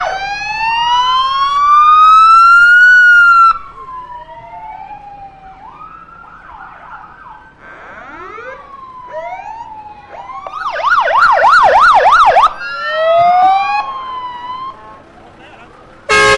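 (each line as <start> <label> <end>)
0.0 Fire engine sirens wailing. 3.6
8.3 Multiple fire engine sirens wail with varying pitch. 16.4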